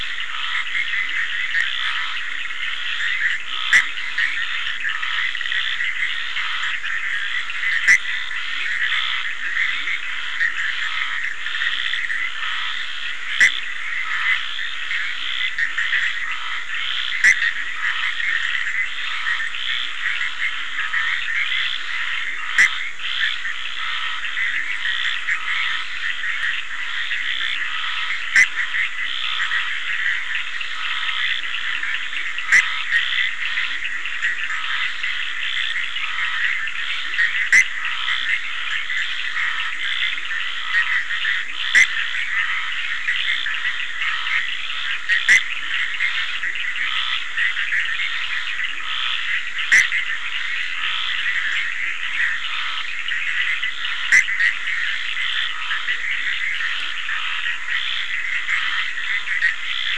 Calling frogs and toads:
Bischoff's tree frog, Scinax perereca, Cochran's lime tree frog, Leptodactylus latrans

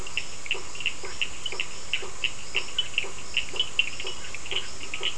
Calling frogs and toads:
Burmeister's tree frog, Cochran's lime tree frog

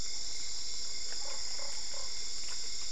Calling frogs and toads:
Usina tree frog

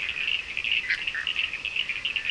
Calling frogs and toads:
Bischoff's tree frog, Cochran's lime tree frog

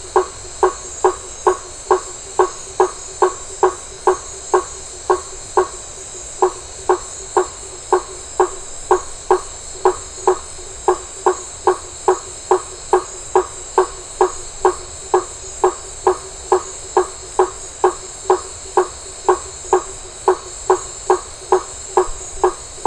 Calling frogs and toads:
blacksmith tree frog

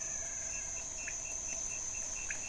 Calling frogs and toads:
pointedbelly frog

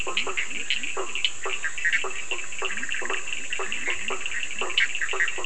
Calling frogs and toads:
Bischoff's tree frog, blacksmith tree frog, Leptodactylus latrans, Cochran's lime tree frog

